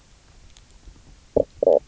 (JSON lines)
{"label": "biophony, knock croak", "recorder": "SoundTrap 300"}